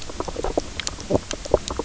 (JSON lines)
{"label": "biophony, knock croak", "recorder": "SoundTrap 300"}